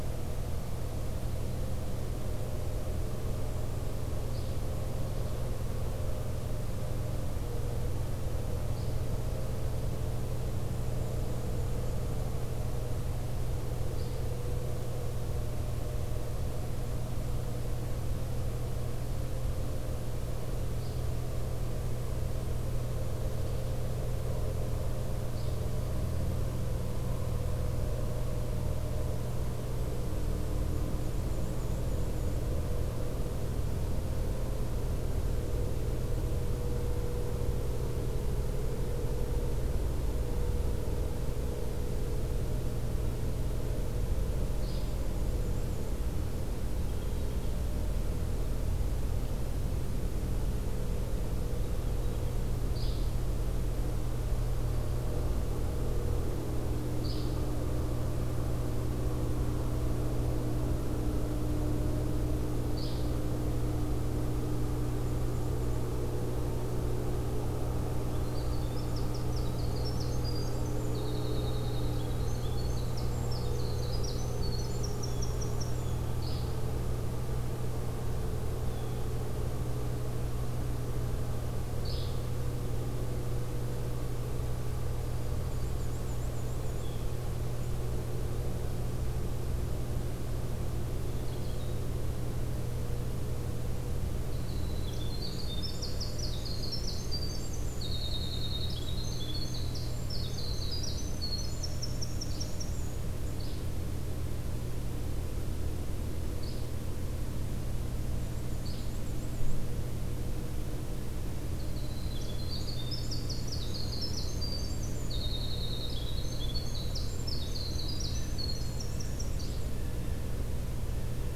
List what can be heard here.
Yellow-bellied Flycatcher, Black-and-white Warbler, Golden-crowned Kinglet, Winter Wren, Blue Jay